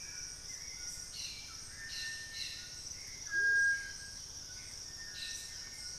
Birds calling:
Hauxwell's Thrush (Turdus hauxwelli), White-throated Toucan (Ramphastos tucanus), Amazonian Motmot (Momotus momota), Cobalt-winged Parakeet (Brotogeris cyanoptera)

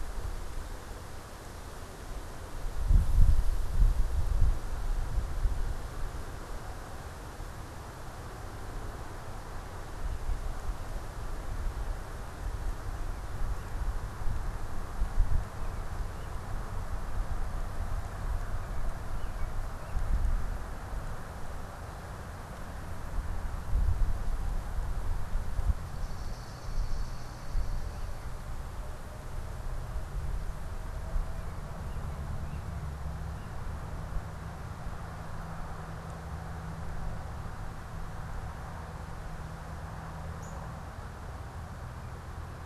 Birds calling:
American Robin (Turdus migratorius), Swamp Sparrow (Melospiza georgiana), Northern Cardinal (Cardinalis cardinalis)

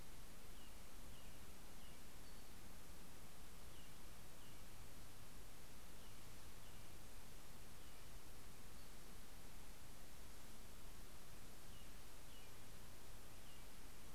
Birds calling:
Pacific-slope Flycatcher (Empidonax difficilis), American Robin (Turdus migratorius)

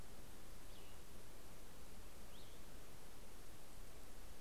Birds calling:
Cassin's Vireo (Vireo cassinii)

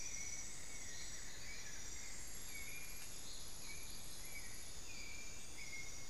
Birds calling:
White-necked Thrush (Turdus albicollis), Amazonian Barred-Woodcreeper (Dendrocolaptes certhia)

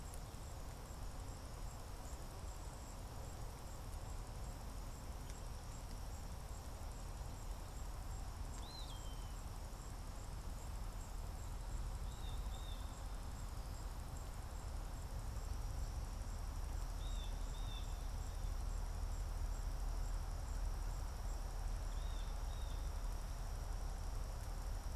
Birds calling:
Eastern Wood-Pewee (Contopus virens), Blue Jay (Cyanocitta cristata)

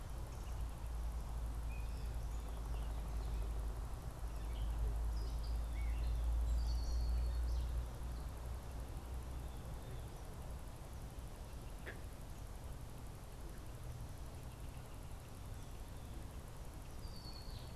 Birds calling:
Gray Catbird (Dumetella carolinensis), unidentified bird, Red-winged Blackbird (Agelaius phoeniceus)

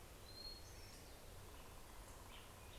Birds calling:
Black-headed Grosbeak (Pheucticus melanocephalus), American Robin (Turdus migratorius), Hermit Thrush (Catharus guttatus)

